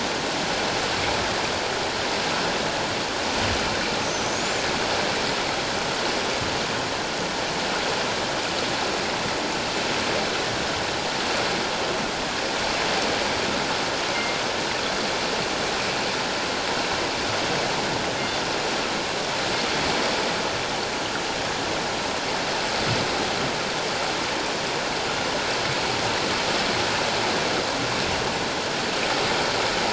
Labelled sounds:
4.3	4.7	killer whale, northern resident, 6.2 to 7.3 kHz

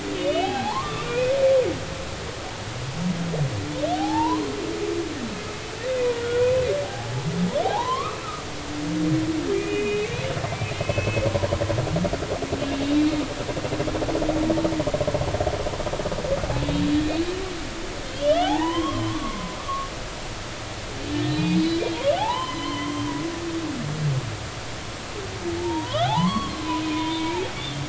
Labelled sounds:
0.4	1.6	humpback whale, 0.80 to 2.7 kHz
3.9	4.5	humpback whale, 0.80 to 1.2 kHz
5.9	8.4	humpback whale, 0.80 to 2.7 kHz
9.5	10.3	humpback whale, 1.9 to 3.0 kHz
10.7	11.3	humpback whale, 2.1 to 2.7 kHz
18.1	19.6	humpback whale, 0.80 to 3.8 kHz
21.1	23.1	humpback whale, 0.80 to 4.0 kHz
25.6	26.6	humpback whale, 0.80 to 3.4 kHz
26.9	27.4	humpback whale, 0.93 to 2.4 kHz

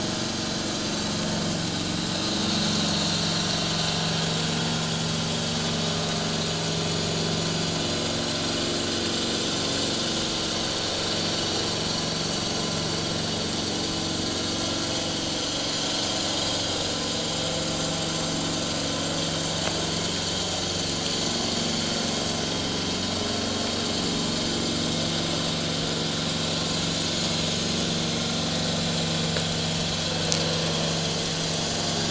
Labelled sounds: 2.8	3.1	vessel noise, 7.0 to 7.1 kHz
28.7	28.9	vessel noise, 7.2 to 7.4 kHz

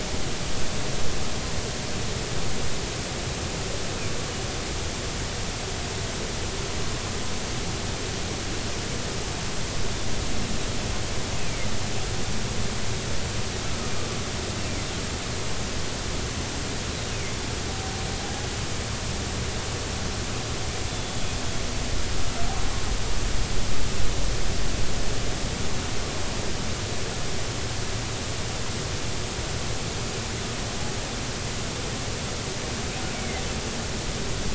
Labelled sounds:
20.9	21.3	humpback whale, 3.3 to 3.6 kHz
33.1	33.4	humpback whale, 2.0 to 2.3 kHz

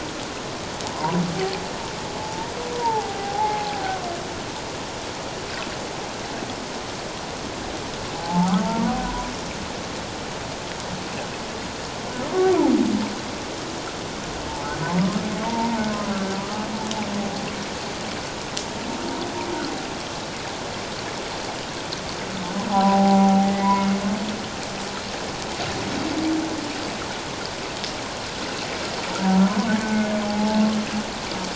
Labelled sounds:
0.9	1.2	humpback whale, 0.88 to 1.1 kHz
2.2	3.7	humpback whale, 0.78 to 1.0 kHz
8.1	9.3	humpback whale, 0.78 to 1.0 kHz
14.5	14.8	humpback whale, 0.81 to 0.94 kHz
15.4	15.8	humpback whale, 0.84 to 1.0 kHz
22.7	23.9	humpback whale, 0.78 to 2.2 kHz
29.8	30.6	humpback whale, 0.78 to 2.2 kHz

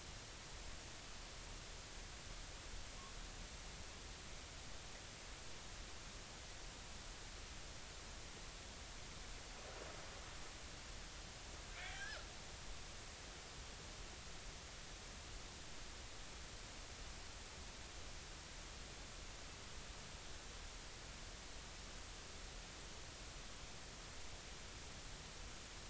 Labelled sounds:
11.7	12.3	killer whale, northern resident, G clan, 1.3 to 2.5 kHz

